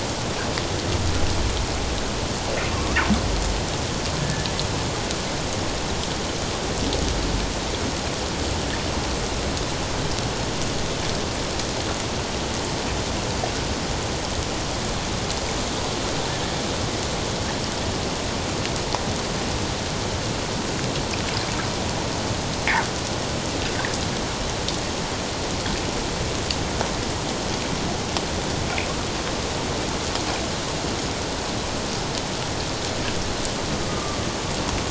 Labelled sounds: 2.7	3.0	fish, 1.0 to 1.3 kHz
4.2	4.5	humpback whale, 1.6 to 1.8 kHz
33.9	34.2	humpback whale, 1.1 to 1.3 kHz

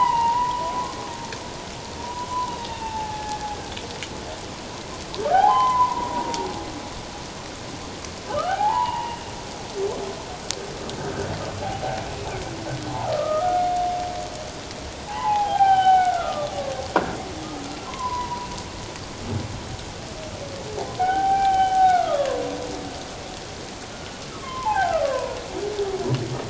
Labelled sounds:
2.7	3.5	humpback whale, 0.78 to 2.8 kHz
5.3	6.5	humpback whale, 0.78 to 3.1 kHz
8.3	9.2	humpback whale, 0.78 to 3.0 kHz
11.6	12.0	humpback whale, 0.78 to 0.88 kHz
13.1	13.7	humpback whale, 1.1 to 1.5 kHz
15.1	16.5	humpback whale, 0.78 to 3.3 kHz
17.9	18.5	humpback whale, 0.91 to 1.1 kHz
21.0	22.6	humpback whale, 0.78 to 3.2 kHz
24.3	25.4	humpback whale, 0.78 to 1.8 kHz

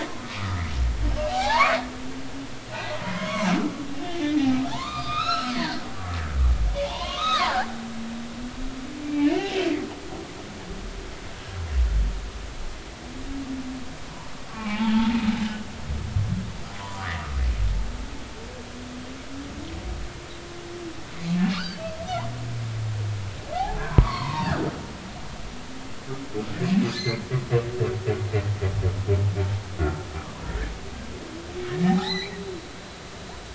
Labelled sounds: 0.7	1.8	humpback whale, 0.80 to 2.3 kHz
2.9	3.5	humpback whale, 0.80 to 2.3 kHz
4.1	5.9	humpback whale, 0.83 to 5.6 kHz
6.8	7.7	humpback whale, 0.80 to 6.5 kHz
9.0	9.6	humpback whale, 1.7 to 2.9 kHz
14.5	15.2	humpback whale, 0.80 to 3.5 kHz
16.8	17.3	humpback whale, 0.86 to 1.3 kHz
21.5	21.8	humpback whale, 1.1 to 5.1 kHz
23.5	24.6	humpback whale, 0.80 to 4.6 kHz
27.0	27.2	humpback whale, 2.0 to 4.4 kHz
29.8	30.1	humpback whale, 1.3 to 1.5 kHz
31.9	32.3	humpback whale, 0.80 to 4.4 kHz

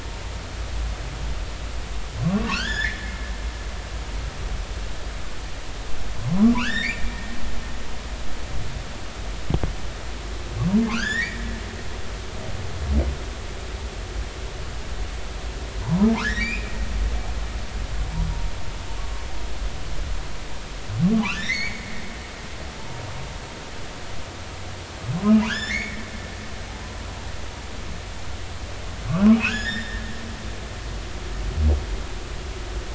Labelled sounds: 2.2	3.3	humpback whale, 0.86 to 7.1 kHz
6.3	7.2	humpback whale, 0.83 to 3.9 kHz
10.8	11.4	humpback whale, 0.96 to 5.7 kHz
15.8	16.7	humpback whale, 0.80 to 5.2 kHz
21.1	21.8	humpback whale, 0.80 to 5.7 kHz
25.3	26.0	humpback whale, 1.4 to 5.4 kHz
29.3	30.0	humpback whale, 1.3 to 5.2 kHz

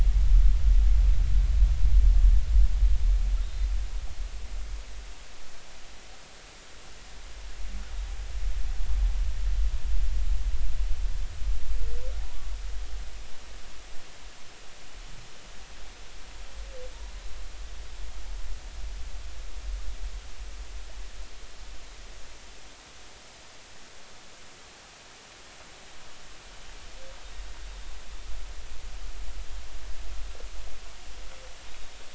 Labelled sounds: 3.4	3.7	humpback whale, 3.6 to 3.9 kHz
31.7	32.0	humpback whale, 3.6 to 3.8 kHz

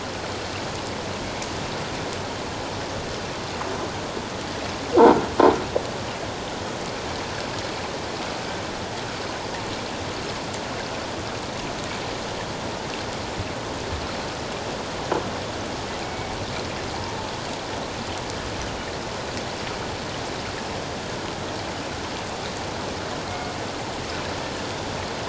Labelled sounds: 16.0	16.3	killer whale, Bigg's (transient), 2.2 to 2.6 kHz
23.3	23.5	killer whale, Bigg's (transient), 2.1 to 2.2 kHz

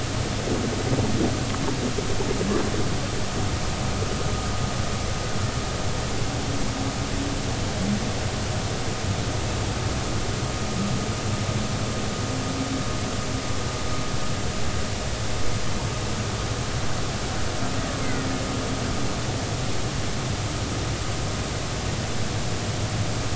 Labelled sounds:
18.0	18.3	killer whale, Bigg's (transient), 1.8 to 2.2 kHz

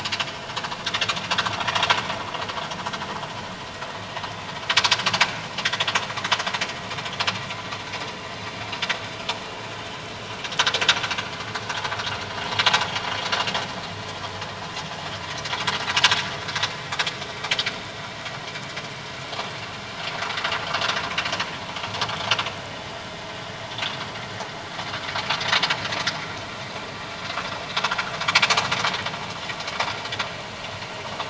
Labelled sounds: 11.7	11.9	vessel noise, 0.84 to 1.0 kHz

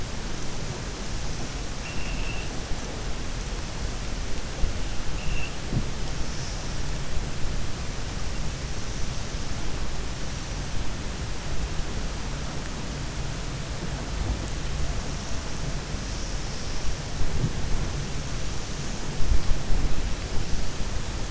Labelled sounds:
1.7	2.5	vessel noise, 2.3 to 3.3 kHz

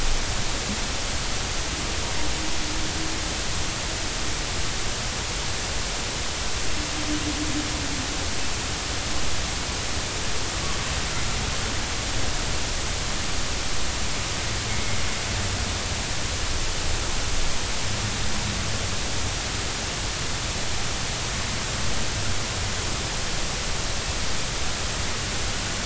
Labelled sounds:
14.7	15.0	humpback whale, 2.1 to 2.2 kHz

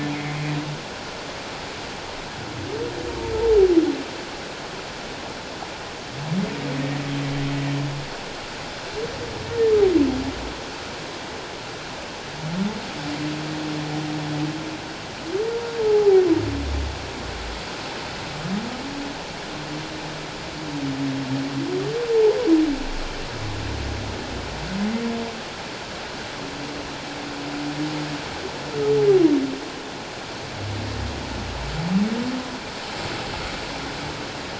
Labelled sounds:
0.1	0.4	humpback whale, 2.0 to 2.2 kHz
15.8	16.2	humpback whale, 0.78 to 0.88 kHz

